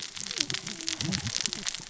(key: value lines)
label: biophony, cascading saw
recorder: SoundTrap 600 or HydroMoth